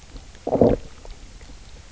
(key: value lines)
label: biophony, low growl
recorder: SoundTrap 300